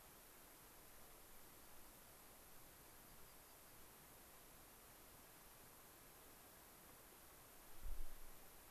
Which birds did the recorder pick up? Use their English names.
American Pipit